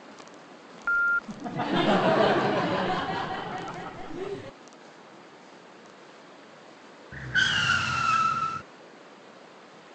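A constant background noise persists. First, at 0.84 seconds, a telephone is heard. Then at 1.27 seconds, someone laughs. Finally, at 7.11 seconds, you can hear a car.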